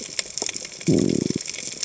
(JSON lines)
{"label": "biophony", "recorder": "HydroMoth"}